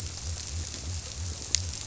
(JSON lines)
{"label": "biophony", "recorder": "SoundTrap 300"}